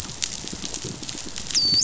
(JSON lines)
{"label": "biophony, dolphin", "recorder": "SoundTrap 500"}